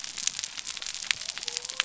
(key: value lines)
label: biophony
recorder: SoundTrap 300